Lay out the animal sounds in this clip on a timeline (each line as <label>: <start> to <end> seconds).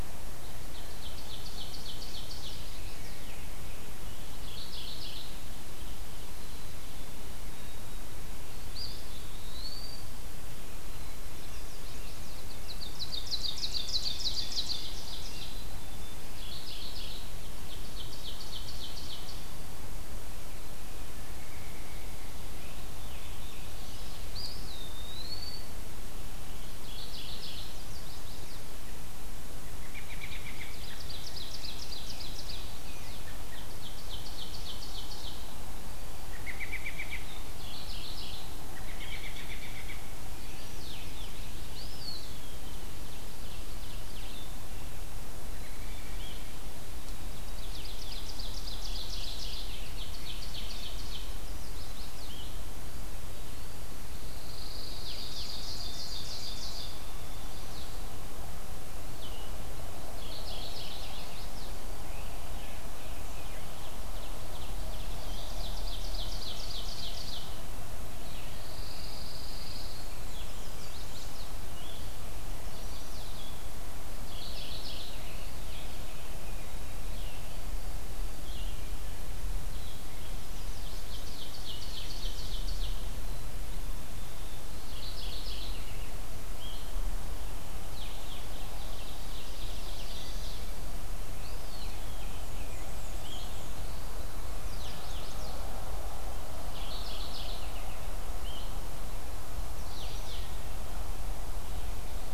Ovenbird (Seiurus aurocapilla): 0.0 to 2.6 seconds
Chestnut-sided Warbler (Setophaga pensylvanica): 2.4 to 3.4 seconds
Mourning Warbler (Geothlypis philadelphia): 4.2 to 5.3 seconds
Black-capped Chickadee (Poecile atricapillus): 6.3 to 7.2 seconds
Eastern Wood-Pewee (Contopus virens): 8.6 to 10.1 seconds
Black-capped Chickadee (Poecile atricapillus): 10.8 to 11.9 seconds
Chestnut-sided Warbler (Setophaga pensylvanica): 11.2 to 12.5 seconds
Ovenbird (Seiurus aurocapilla): 12.3 to 15.6 seconds
Scarlet Tanager (Piranga olivacea): 13.3 to 15.5 seconds
Black-capped Chickadee (Poecile atricapillus): 15.2 to 16.3 seconds
Mourning Warbler (Geothlypis philadelphia): 16.2 to 17.3 seconds
Ovenbird (Seiurus aurocapilla): 17.3 to 19.5 seconds
American Robin (Turdus migratorius): 21.2 to 22.4 seconds
Scarlet Tanager (Piranga olivacea): 22.4 to 24.5 seconds
Eastern Wood-Pewee (Contopus virens): 24.3 to 25.7 seconds
Mourning Warbler (Geothlypis philadelphia): 26.7 to 27.7 seconds
Chestnut-sided Warbler (Setophaga pensylvanica): 27.7 to 28.7 seconds
American Robin (Turdus migratorius): 29.8 to 30.8 seconds
Ovenbird (Seiurus aurocapilla): 29.9 to 32.6 seconds
Scarlet Tanager (Piranga olivacea): 31.4 to 33.1 seconds
Ovenbird (Seiurus aurocapilla): 33.5 to 35.3 seconds
American Robin (Turdus migratorius): 36.4 to 37.4 seconds
Mourning Warbler (Geothlypis philadelphia): 37.5 to 38.6 seconds
American Robin (Turdus migratorius): 38.8 to 40.1 seconds
Chestnut-sided Warbler (Setophaga pensylvanica): 40.2 to 41.3 seconds
Blue-headed Vireo (Vireo solitarius): 40.6 to 98.7 seconds
Eastern Wood-Pewee (Contopus virens): 41.7 to 43.0 seconds
Ovenbird (Seiurus aurocapilla): 42.7 to 44.3 seconds
American Robin (Turdus migratorius): 45.4 to 46.4 seconds
Ovenbird (Seiurus aurocapilla): 47.3 to 51.5 seconds
Chestnut-sided Warbler (Setophaga pensylvanica): 51.3 to 52.5 seconds
Pine Warbler (Setophaga pinus): 54.1 to 55.6 seconds
Ovenbird (Seiurus aurocapilla): 55.1 to 57.1 seconds
Mourning Warbler (Geothlypis philadelphia): 60.1 to 61.1 seconds
Chestnut-sided Warbler (Setophaga pensylvanica): 60.7 to 61.8 seconds
Ovenbird (Seiurus aurocapilla): 62.8 to 67.6 seconds
Pine Warbler (Setophaga pinus): 68.4 to 70.1 seconds
Chestnut-sided Warbler (Setophaga pensylvanica): 70.3 to 71.6 seconds
Chestnut-sided Warbler (Setophaga pensylvanica): 72.5 to 73.6 seconds
Mourning Warbler (Geothlypis philadelphia): 74.1 to 75.2 seconds
Ovenbird (Seiurus aurocapilla): 80.4 to 83.1 seconds
Mourning Warbler (Geothlypis philadelphia): 84.6 to 86.0 seconds
Ovenbird (Seiurus aurocapilla): 88.7 to 90.6 seconds
Chestnut-sided Warbler (Setophaga pensylvanica): 89.4 to 90.8 seconds
Eastern Wood-Pewee (Contopus virens): 91.2 to 92.1 seconds
Black-and-white Warbler (Mniotilta varia): 92.3 to 93.7 seconds
Chestnut-sided Warbler (Setophaga pensylvanica): 94.4 to 95.7 seconds
Mourning Warbler (Geothlypis philadelphia): 96.6 to 97.8 seconds
Chestnut-sided Warbler (Setophaga pensylvanica): 99.6 to 100.5 seconds